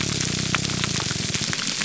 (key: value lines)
label: biophony, grouper groan
recorder: SoundTrap 300